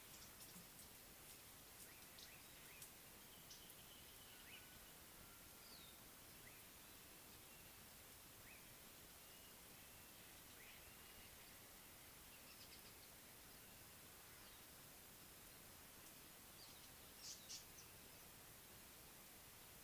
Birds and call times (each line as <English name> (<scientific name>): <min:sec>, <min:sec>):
Slate-colored Boubou (Laniarius funebris): 0:08.5
Blue-naped Mousebird (Urocolius macrourus): 0:11.0
Tawny-flanked Prinia (Prinia subflava): 0:17.4